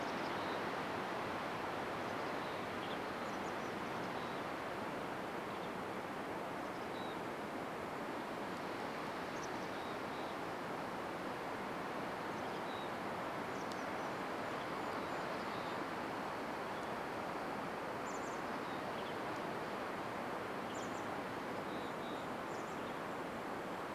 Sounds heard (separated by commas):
Golden-crowned Kinglet call, Mountain Chickadee call, Western Tanager call, Golden-crowned Kinglet song, Chestnut-backed Chickadee call, Mountain Chickadee song